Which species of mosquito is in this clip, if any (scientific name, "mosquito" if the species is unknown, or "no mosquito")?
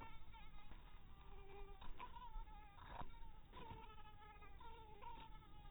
mosquito